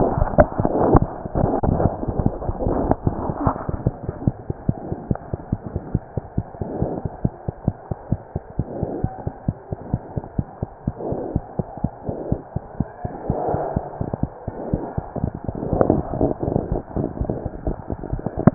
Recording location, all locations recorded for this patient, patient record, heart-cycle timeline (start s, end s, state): mitral valve (MV)
pulmonary valve (PV)+tricuspid valve (TV)+mitral valve (MV)
#Age: Infant
#Sex: Female
#Height: 73.0 cm
#Weight: 8.7 kg
#Pregnancy status: False
#Murmur: Absent
#Murmur locations: nan
#Most audible location: nan
#Systolic murmur timing: nan
#Systolic murmur shape: nan
#Systolic murmur grading: nan
#Systolic murmur pitch: nan
#Systolic murmur quality: nan
#Diastolic murmur timing: nan
#Diastolic murmur shape: nan
#Diastolic murmur grading: nan
#Diastolic murmur pitch: nan
#Diastolic murmur quality: nan
#Outcome: Normal
#Campaign: 2015 screening campaign
0.00	4.23	unannotated
4.23	4.34	S1
4.34	4.46	systole
4.46	4.54	S2
4.54	4.66	diastole
4.66	4.73	S1
4.73	4.89	systole
4.89	4.96	S2
4.96	5.08	diastole
5.08	5.16	S1
5.16	5.31	systole
5.31	5.38	S2
5.38	5.49	diastole
5.49	5.57	S1
5.57	5.73	systole
5.73	5.80	S2
5.80	5.91	diastole
5.91	6.01	S1
6.01	6.14	systole
6.14	6.22	S2
6.22	6.34	diastole
6.34	6.44	S1
6.44	6.58	systole
6.58	6.66	S2
6.66	6.79	diastole
6.79	6.87	S1
6.87	7.02	systole
7.02	7.09	S2
7.09	7.20	diastole
7.20	7.31	S1
7.31	7.45	systole
7.45	7.53	S2
7.53	7.63	diastole
7.63	7.73	S1
7.73	7.89	systole
7.89	7.96	S2
7.96	8.08	diastole
8.08	8.19	S1
8.19	8.32	systole
8.32	8.41	S2
8.41	8.55	diastole
8.55	8.65	S1
8.65	8.79	systole
8.79	8.87	S2
8.87	9.00	diastole
9.00	9.11	S1
9.11	9.23	systole
9.23	9.31	S2
9.31	9.45	diastole
9.45	9.54	S1
9.54	9.68	systole
9.68	9.77	S2
9.77	9.90	diastole
9.90	9.99	S1
9.99	18.54	unannotated